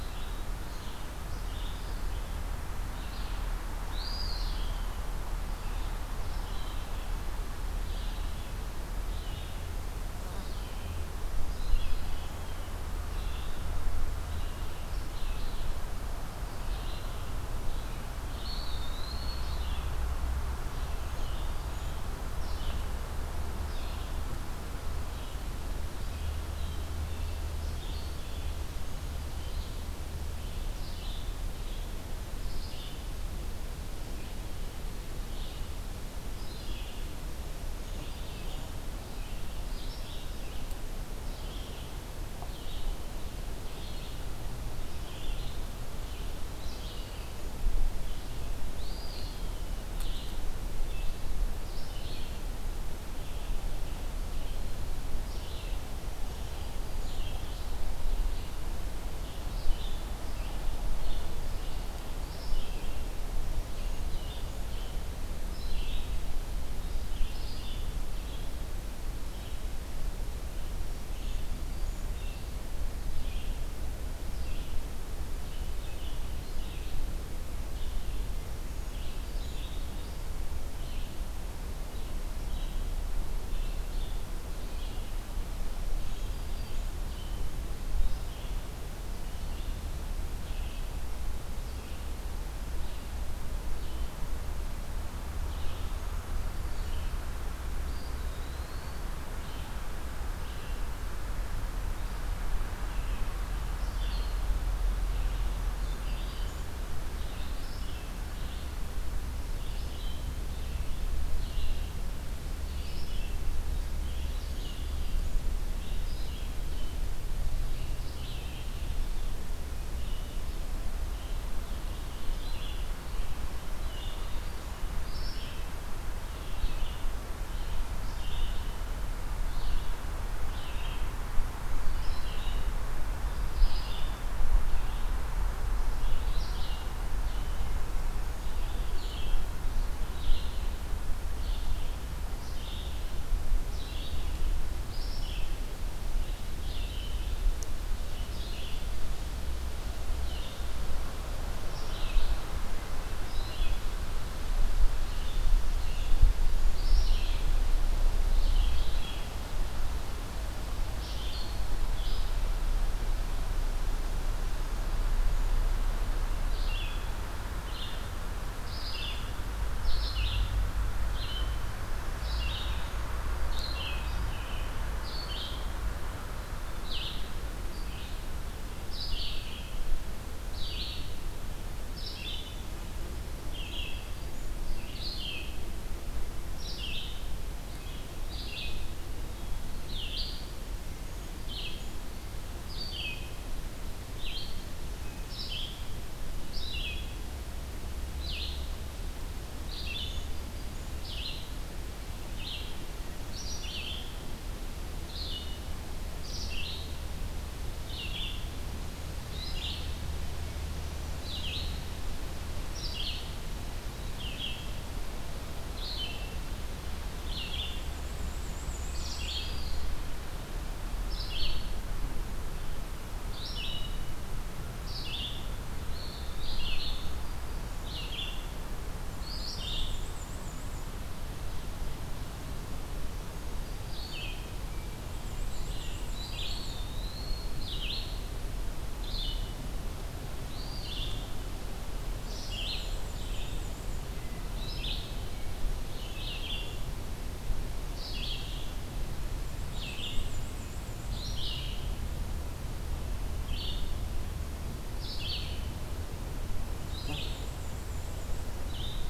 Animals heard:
Black-throated Green Warbler (Setophaga virens), Red-eyed Vireo (Vireo olivaceus), Ovenbird (Seiurus aurocapilla), Black-and-white Warbler (Mniotilta varia), Eastern Wood-Pewee (Contopus virens)

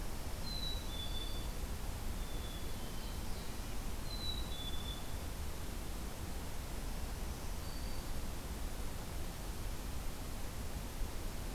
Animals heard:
Black-throated Green Warbler (Setophaga virens), Red-breasted Nuthatch (Sitta canadensis), Ovenbird (Seiurus aurocapilla), Black-capped Chickadee (Poecile atricapillus)

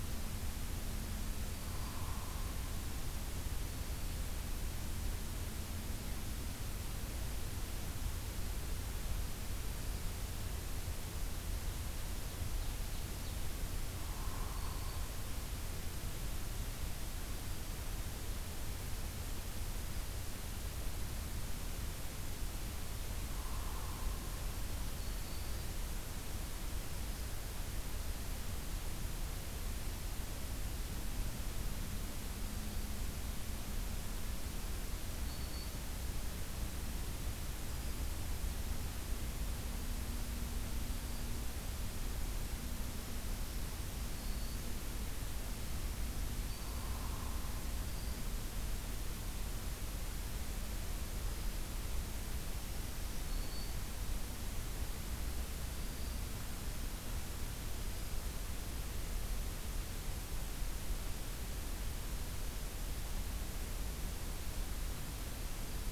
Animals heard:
Ovenbird (Seiurus aurocapilla), Hairy Woodpecker (Dryobates villosus), Black-throated Green Warbler (Setophaga virens)

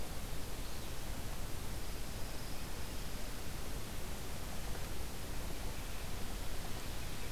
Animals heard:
Pine Warbler (Setophaga pinus)

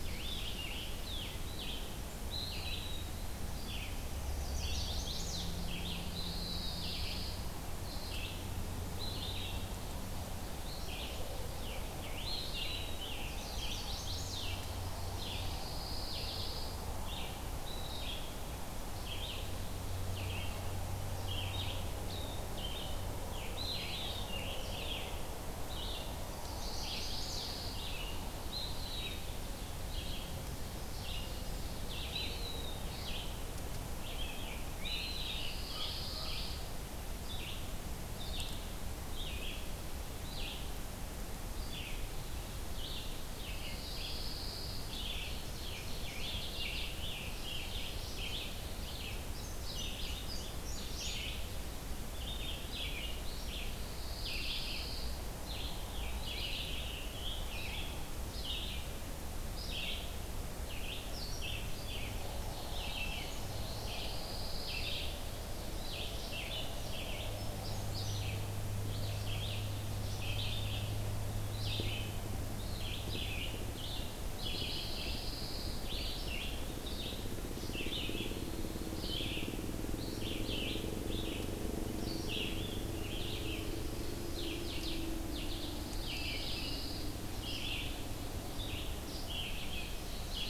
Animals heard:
Eastern Wood-Pewee (Contopus virens), Scarlet Tanager (Piranga olivacea), Ovenbird (Seiurus aurocapilla), Red-eyed Vireo (Vireo olivaceus), Chestnut-sided Warbler (Setophaga pensylvanica), Brown Creeper (Certhia americana), Pine Warbler (Setophaga pinus), American Crow (Corvus brachyrhynchos)

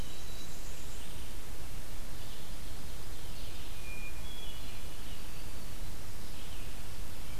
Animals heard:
Red-eyed Vireo (Vireo olivaceus), Hermit Thrush (Catharus guttatus), Blackburnian Warbler (Setophaga fusca), Black-throated Green Warbler (Setophaga virens)

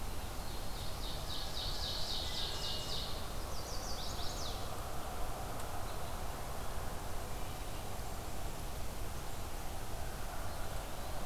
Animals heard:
Ovenbird (Seiurus aurocapilla), Chestnut-sided Warbler (Setophaga pensylvanica)

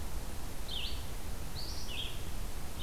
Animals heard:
Red-eyed Vireo (Vireo olivaceus)

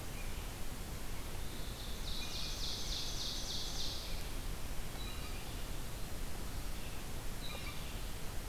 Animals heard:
Ovenbird (Seiurus aurocapilla), Blue Jay (Cyanocitta cristata)

